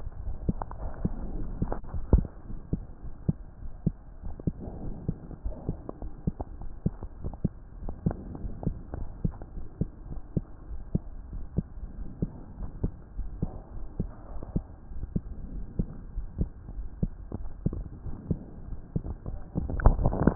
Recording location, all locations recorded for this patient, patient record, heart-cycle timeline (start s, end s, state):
aortic valve (AV)
aortic valve (AV)+pulmonary valve (PV)+tricuspid valve (TV)+mitral valve (MV)
#Age: Child
#Sex: Female
#Height: 133.0 cm
#Weight: 24.9 kg
#Pregnancy status: False
#Murmur: Absent
#Murmur locations: nan
#Most audible location: nan
#Systolic murmur timing: nan
#Systolic murmur shape: nan
#Systolic murmur grading: nan
#Systolic murmur pitch: nan
#Systolic murmur quality: nan
#Diastolic murmur timing: nan
#Diastolic murmur shape: nan
#Diastolic murmur grading: nan
#Diastolic murmur pitch: nan
#Diastolic murmur quality: nan
#Outcome: Normal
#Campaign: 2015 screening campaign
0.00	2.53	unannotated
2.53	2.60	S1
2.60	2.72	systole
2.72	2.84	S2
2.84	3.00	diastole
3.00	3.14	S1
3.14	3.25	systole
3.25	3.36	S2
3.36	3.60	diastole
3.60	3.72	S1
3.72	3.83	systole
3.83	3.94	S2
3.94	4.23	diastole
4.23	4.36	S1
4.36	4.46	systole
4.46	4.56	S2
4.56	4.83	diastole
4.83	4.96	S1
4.96	5.05	systole
5.05	5.16	S2
5.16	5.43	diastole
5.43	5.56	S1
5.56	5.66	systole
5.66	5.76	S2
5.76	6.00	diastole
6.00	6.14	S1
6.14	6.24	systole
6.24	6.32	S2
6.32	6.58	diastole
6.58	6.70	S1
6.70	6.83	systole
6.83	6.94	S2
6.94	7.22	diastole
7.22	7.34	S1
7.34	7.42	systole
7.42	7.52	S2
7.52	7.82	diastole
7.82	7.96	S1
7.96	8.04	systole
8.04	8.18	S2
8.18	8.41	diastole
8.41	8.55	S1
8.55	8.63	systole
8.63	8.74	S2
8.74	8.97	diastole
8.97	9.10	S1
9.10	9.22	systole
9.22	9.32	S2
9.32	9.54	diastole
9.54	9.66	S1
9.66	9.78	systole
9.78	9.88	S2
9.88	10.09	diastole
10.09	10.22	S1
10.22	10.32	systole
10.32	10.44	S2
10.44	10.70	diastole
10.70	10.80	S1
10.80	10.90	systole
10.90	11.02	S2
11.02	11.34	diastole
11.34	11.46	S1
11.46	11.56	systole
11.56	11.66	S2
11.66	11.98	diastole
11.98	12.12	S1
12.12	12.20	systole
12.20	12.32	S2
12.32	12.60	diastole
12.60	12.72	S1
12.72	12.80	systole
12.80	12.92	S2
12.92	13.14	diastole
13.14	13.30	S1
13.30	13.40	systole
13.40	13.50	S2
13.50	13.74	diastole
13.74	13.88	S1
13.88	13.97	systole
13.97	14.08	S2
14.08	14.30	diastole
14.30	14.42	S1
14.42	14.52	systole
14.52	14.64	S2
14.64	14.94	diastole
14.94	15.05	S1
15.05	15.14	systole
15.14	15.24	S2
15.24	15.54	diastole
15.54	15.66	S1
15.66	15.76	systole
15.76	15.88	S2
15.88	16.16	diastole
16.16	16.28	S1
16.28	16.38	systole
16.38	16.48	S2
16.48	16.76	diastole
16.76	16.88	S1
16.88	17.00	systole
17.00	17.10	S2
17.10	17.38	diastole
17.38	17.50	S1
17.50	17.63	systole
17.63	17.76	S2
17.76	18.06	diastole
18.06	18.18	S1
18.18	18.28	systole
18.28	18.38	S2
18.38	18.60	diastole
18.60	20.35	unannotated